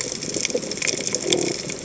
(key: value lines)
label: biophony
recorder: HydroMoth